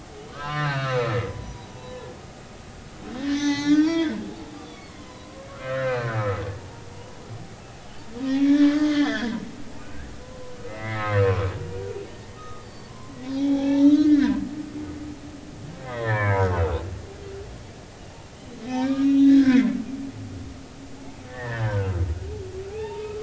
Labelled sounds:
0.3	2.2	humpback whale, 0.83 to 5.1 kHz
3.2	4.2	humpback whale, 0.80 to 6.4 kHz
4.7	6.2	humpback whale, 0.96 to 4.1 kHz
6.5	7.2	humpback whale, 0.80 to 1.0 kHz
8.2	9.3	humpback whale, 1.1 to 3.6 kHz
9.8	11.5	humpback whale, 0.96 to 2.3 kHz
12.4	14.4	humpback whale, 0.80 to 4.7 kHz
15.8	16.8	humpback whale, 0.83 to 3.4 kHz
18.6	19.7	humpback whale, 1.4 to 3.9 kHz
21.3	23.2	humpback whale, 0.80 to 2.8 kHz

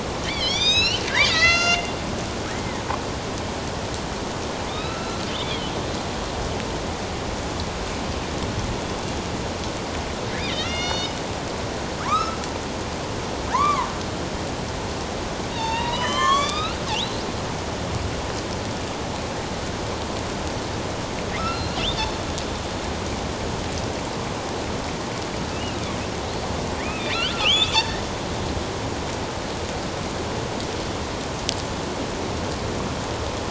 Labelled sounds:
0.2	1.9	killer whale, northern resident, A clan, AB subclan, 1.2 to 8.0 kHz
4.7	5.7	killer whale, northern resident, A clan, AB subclan, 1.2 to 4.1 kHz
10.4	11.2	killer whale, northern resident, A clan, AB subclan, 1.8 to 6.6 kHz
12.0	12.4	killer whale, northern resident, A clan, AB subclan, 0.94 to 2.7 kHz
13.5	13.9	killer whale, northern resident, A clan, AB subclan, 0.84 to 2.4 kHz
15.5	17.2	killer whale, northern resident, A clan, AB subclan, 0.84 to 7.6 kHz
21.4	22.1	killer whale, northern resident, A clan, AB subclan, 1.2 to 4.4 kHz
25.5	25.8	killer whale, northern resident, A clan, AB subclan, 2.5 to 3.0 kHz
26.8	28.1	killer whale, northern resident, A clan, AB subclan, 1.1 to 3.9 kHz

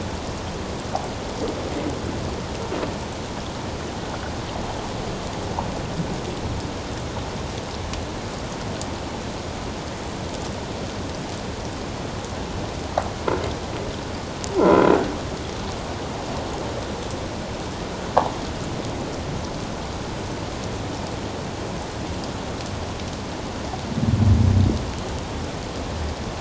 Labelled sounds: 14.6	14.9	croaking sound likely from a nearby submerged object, 1.3 to 1.4 kHz

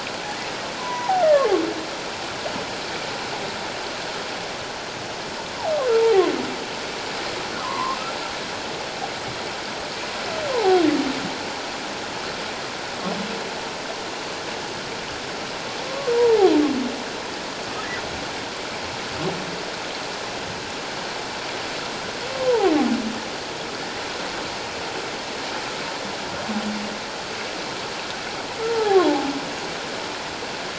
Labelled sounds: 0.8	1.5	humpback whale, 0.78 to 1.5 kHz
6.0	6.2	humpback whale, 0.78 to 0.97 kHz
7.6	8.0	humpback whale, 0.91 to 1.2 kHz
10.5	10.8	humpback whale, 0.78 to 1.1 kHz
16.1	16.5	humpback whale, 0.78 to 1.0 kHz
22.4	22.7	humpback whale, 0.78 to 1.1 kHz
28.7	29.0	humpback whale, 0.78 to 0.94 kHz

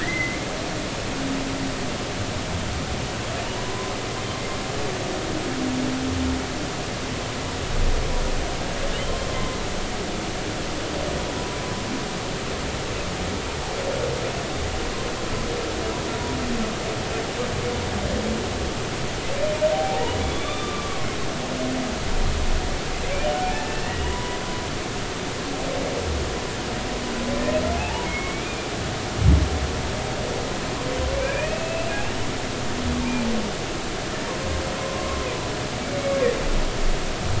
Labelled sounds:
0.0	0.4	humpback whale, 1.7 to 2.2 kHz
3.5	3.9	humpback whale, 0.90 to 1.1 kHz
9.3	9.6	humpback whale, 0.99 to 1.1 kHz
19.7	21.0	humpback whale, 0.80 to 3.7 kHz
23.4	24.4	humpback whale, 0.80 to 1.9 kHz
27.8	28.7	humpback whale, 0.80 to 2.5 kHz
31.2	31.9	humpback whale, 1.5 to 2.8 kHz
34.8	35.2	humpback whale, 0.99 to 1.1 kHz

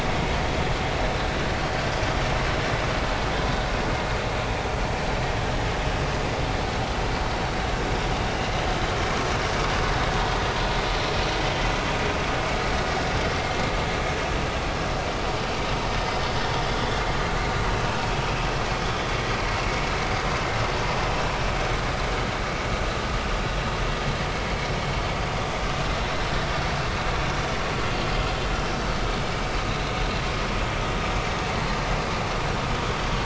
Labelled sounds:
13.3	13.6	vessel noise, 2.0 to 2.2 kHz
18.8	19.1	vessel noise, 3.4 to 3.6 kHz

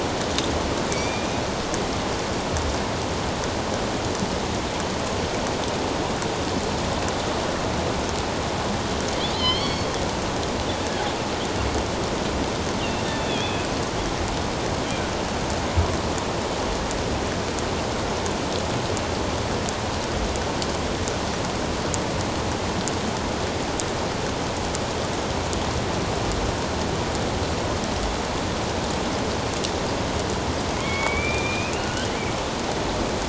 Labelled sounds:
0.9	1.4	killer whale, northern resident, A clan, AB subclan, 2.2 to 2.5 kHz
9.3	9.9	killer whale, northern resident, A clan, AB subclan, 2.0 to 6.8 kHz
13.0	13.7	killer whale, northern resident, A clan, AB subclan, 2.4 to 3.7 kHz
30.7	32.2	killer whale, northern resident, A clan, AB subclan, 1.4 to 3.7 kHz

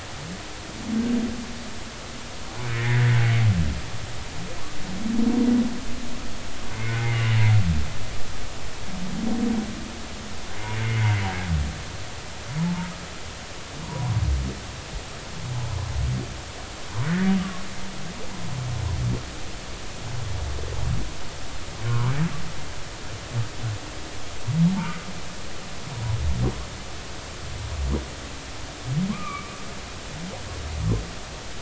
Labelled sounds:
2.7	3.1	humpback whale, 1.5 to 2.2 kHz
6.9	7.2	humpback whale, 2.0 to 2.2 kHz
11.8	12.9	humpback whale, 0.83 to 2.2 kHz
13.8	14.1	humpback whale, 0.93 to 1.1 kHz
17.4	17.6	humpback whale, 1.1 to 1.2 kHz
21.9	22.1	humpback whale, 0.86 to 1.3 kHz
25.8	26.1	humpback whale, 1.2 to 1.3 kHz
29.1	29.5	humpback whale, 0.99 to 2.5 kHz

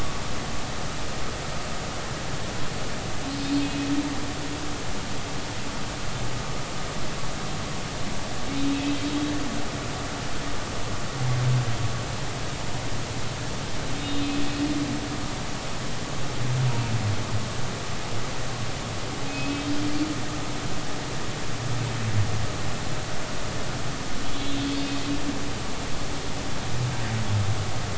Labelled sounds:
3.4	3.9	humpback whale, 2.5 to 3.7 kHz
14.0	14.2	humpback whale, 3.6 to 3.8 kHz
19.3	19.7	humpback whale, 2.5 to 2.6 kHz
24.2	24.6	humpback whale, 3.0 to 4.0 kHz

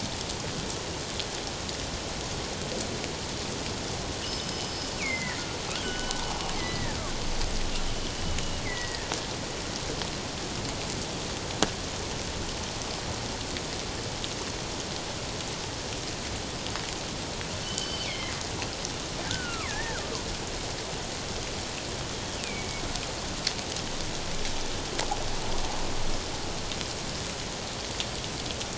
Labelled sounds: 4.2	5.4	killer whale, northern resident, G clan, 1.7 to 5.2 kHz
5.8	7.0	killer whale, northern resident, G clan, 1.4 to 3.1 kHz
8.6	9.1	killer whale, northern resident, G clan, 1.8 to 2.2 kHz
17.6	18.4	killer whale, northern resident, G clan, 1.8 to 4.7 kHz
19.3	20.1	killer whale, northern resident, G clan, 1.0 to 2.7 kHz
22.4	22.8	killer whale, northern resident, G clan, 2.1 to 2.8 kHz

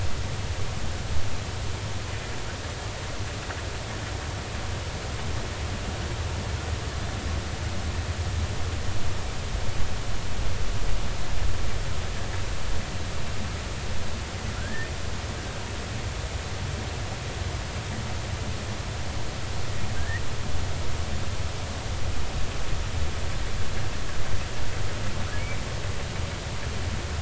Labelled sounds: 14.6	14.9	humpback whale, 1.3 to 1.9 kHz
19.9	20.2	humpback whale, 1.5 to 2.0 kHz

